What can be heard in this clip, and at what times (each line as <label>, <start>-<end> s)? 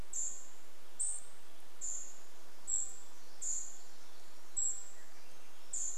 Cedar Waxwing call, 0-6 s
Pacific Wren song, 2-6 s
Swainson's Thrush song, 4-6 s